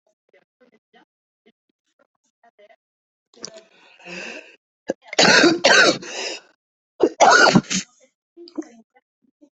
{"expert_labels": [{"quality": "good", "cough_type": "wet", "dyspnea": false, "wheezing": false, "stridor": false, "choking": false, "congestion": true, "nothing": false, "diagnosis": "lower respiratory tract infection", "severity": "severe"}], "age": 47, "gender": "female", "respiratory_condition": false, "fever_muscle_pain": false, "status": "COVID-19"}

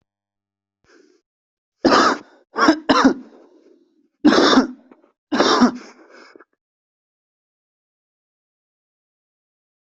{"expert_labels": [{"quality": "good", "cough_type": "wet", "dyspnea": false, "wheezing": false, "stridor": false, "choking": false, "congestion": false, "nothing": true, "diagnosis": "lower respiratory tract infection", "severity": "severe"}], "gender": "female", "respiratory_condition": true, "fever_muscle_pain": false, "status": "symptomatic"}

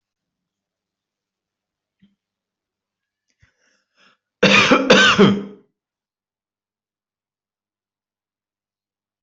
{"expert_labels": [{"quality": "good", "cough_type": "dry", "dyspnea": false, "wheezing": false, "stridor": false, "choking": false, "congestion": false, "nothing": true, "diagnosis": "upper respiratory tract infection", "severity": "mild"}], "age": 28, "gender": "male", "respiratory_condition": false, "fever_muscle_pain": false, "status": "healthy"}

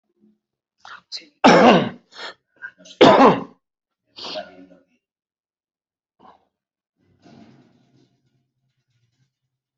{"expert_labels": [{"quality": "good", "cough_type": "dry", "dyspnea": false, "wheezing": false, "stridor": false, "choking": false, "congestion": false, "nothing": true, "diagnosis": "healthy cough", "severity": "pseudocough/healthy cough"}]}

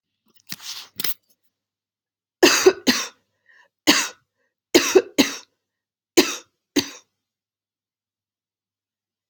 {"expert_labels": [{"quality": "good", "cough_type": "dry", "dyspnea": false, "wheezing": false, "stridor": false, "choking": false, "congestion": false, "nothing": true, "diagnosis": "upper respiratory tract infection", "severity": "mild"}], "age": 66, "gender": "female", "respiratory_condition": false, "fever_muscle_pain": false, "status": "healthy"}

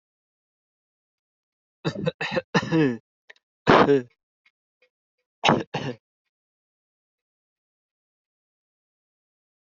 {"expert_labels": [{"quality": "ok", "cough_type": "dry", "dyspnea": false, "wheezing": false, "stridor": false, "choking": false, "congestion": false, "nothing": true, "diagnosis": "upper respiratory tract infection", "severity": "unknown"}]}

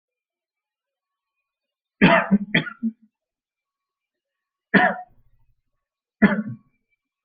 {"expert_labels": [{"quality": "ok", "cough_type": "dry", "dyspnea": false, "wheezing": false, "stridor": false, "choking": false, "congestion": false, "nothing": true, "diagnosis": "upper respiratory tract infection", "severity": "mild"}], "age": 40, "gender": "male", "respiratory_condition": false, "fever_muscle_pain": false, "status": "healthy"}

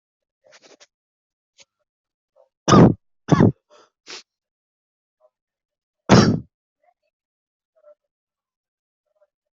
{"expert_labels": [{"quality": "poor", "cough_type": "unknown", "dyspnea": false, "wheezing": false, "stridor": false, "choking": false, "congestion": false, "nothing": true, "diagnosis": "healthy cough", "severity": "unknown"}], "age": 21, "gender": "female", "respiratory_condition": false, "fever_muscle_pain": false, "status": "COVID-19"}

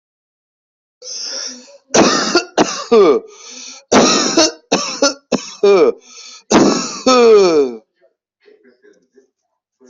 {"expert_labels": [{"quality": "ok", "cough_type": "dry", "dyspnea": false, "wheezing": true, "stridor": false, "choking": false, "congestion": false, "nothing": true, "diagnosis": "COVID-19", "severity": "mild"}], "age": 37, "gender": "male", "respiratory_condition": true, "fever_muscle_pain": true, "status": "COVID-19"}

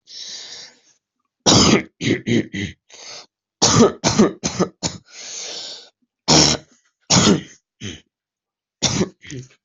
{"expert_labels": [{"quality": "good", "cough_type": "wet", "dyspnea": true, "wheezing": false, "stridor": false, "choking": false, "congestion": true, "nothing": false, "diagnosis": "lower respiratory tract infection", "severity": "mild"}]}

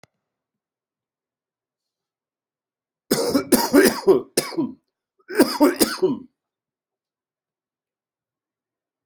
{"expert_labels": [{"quality": "good", "cough_type": "wet", "dyspnea": false, "wheezing": false, "stridor": false, "choking": false, "congestion": false, "nothing": true, "diagnosis": "lower respiratory tract infection", "severity": "mild"}], "age": 59, "gender": "male", "respiratory_condition": false, "fever_muscle_pain": false, "status": "symptomatic"}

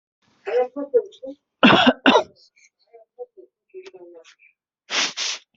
{"expert_labels": [{"quality": "ok", "cough_type": "unknown", "dyspnea": false, "wheezing": false, "stridor": false, "choking": false, "congestion": false, "nothing": true, "diagnosis": "lower respiratory tract infection", "severity": "mild"}], "age": 40, "gender": "female", "respiratory_condition": false, "fever_muscle_pain": false, "status": "symptomatic"}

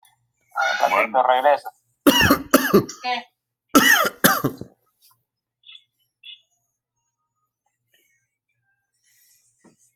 {"expert_labels": [{"quality": "ok", "cough_type": "dry", "dyspnea": false, "wheezing": false, "stridor": false, "choking": false, "congestion": false, "nothing": true, "diagnosis": "COVID-19", "severity": "mild"}]}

